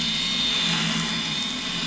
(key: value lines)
label: anthrophony, boat engine
recorder: SoundTrap 500